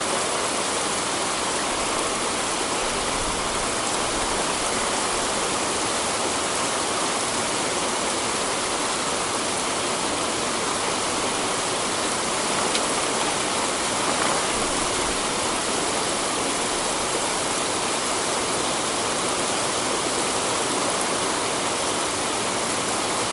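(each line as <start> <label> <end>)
0.0 Rain booms steadily outside. 23.3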